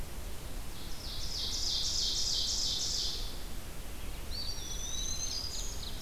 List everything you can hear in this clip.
Red-eyed Vireo, Ovenbird, Black-throated Green Warbler, Eastern Wood-Pewee